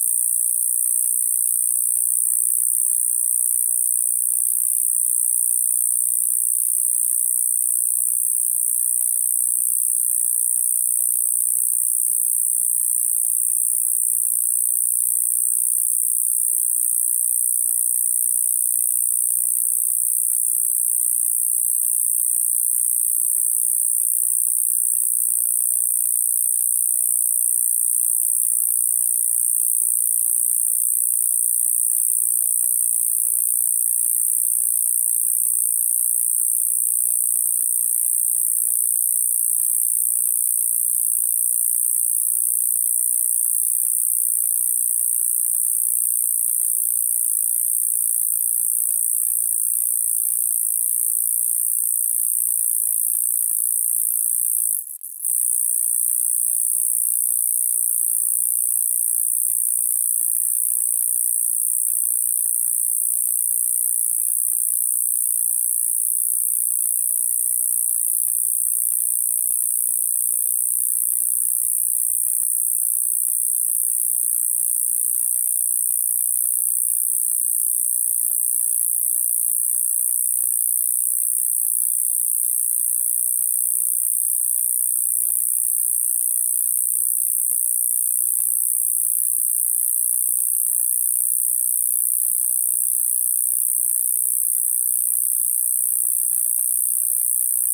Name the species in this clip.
Gampsocleis glabra